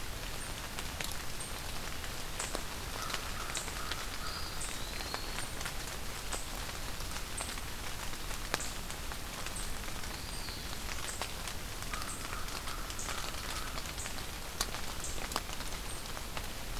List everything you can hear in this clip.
American Crow, Eastern Wood-Pewee